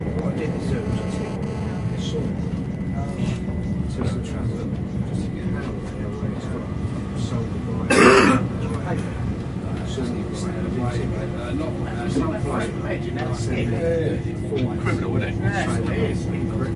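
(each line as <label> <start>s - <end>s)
People chatting quietly on a train. 0.0s - 7.7s
A single cough. 7.7s - 8.6s
People chatting quietly on a train. 8.8s - 16.8s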